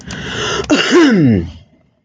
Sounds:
Throat clearing